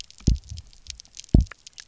{"label": "biophony, double pulse", "recorder": "SoundTrap 300"}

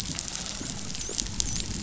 {"label": "biophony, dolphin", "recorder": "SoundTrap 500"}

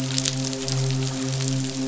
{"label": "biophony, midshipman", "recorder": "SoundTrap 500"}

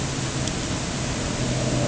{"label": "anthrophony, boat engine", "recorder": "HydroMoth"}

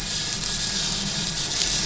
{"label": "anthrophony, boat engine", "recorder": "SoundTrap 500"}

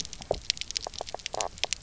{"label": "biophony, knock croak", "recorder": "SoundTrap 300"}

